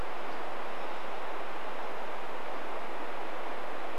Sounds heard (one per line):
Hermit Thrush song